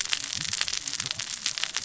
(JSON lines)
{"label": "biophony, cascading saw", "recorder": "SoundTrap 600 or HydroMoth"}